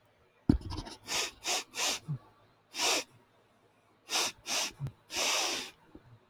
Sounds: Sniff